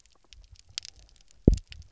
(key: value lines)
label: biophony, double pulse
recorder: SoundTrap 300